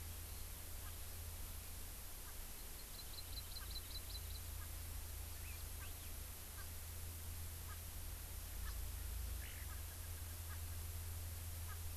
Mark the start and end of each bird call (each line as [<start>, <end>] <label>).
[2.76, 4.36] Hawaii Amakihi (Chlorodrepanis virens)
[3.56, 3.66] Erckel's Francolin (Pternistis erckelii)
[4.56, 4.66] Erckel's Francolin (Pternistis erckelii)
[5.36, 6.16] Hawaii Elepaio (Chasiempis sandwichensis)
[5.76, 5.86] Erckel's Francolin (Pternistis erckelii)
[6.56, 6.66] Erckel's Francolin (Pternistis erckelii)
[7.66, 7.76] Erckel's Francolin (Pternistis erckelii)
[8.66, 8.76] Erckel's Francolin (Pternistis erckelii)
[9.36, 9.66] Eurasian Skylark (Alauda arvensis)
[9.66, 9.76] Erckel's Francolin (Pternistis erckelii)
[10.46, 10.56] Erckel's Francolin (Pternistis erckelii)
[11.66, 11.76] Erckel's Francolin (Pternistis erckelii)